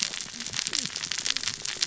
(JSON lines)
{"label": "biophony, cascading saw", "recorder": "SoundTrap 600 or HydroMoth"}